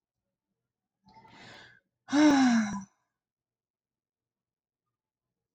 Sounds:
Sigh